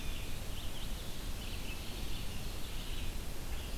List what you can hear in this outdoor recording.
Red-eyed Vireo, Ovenbird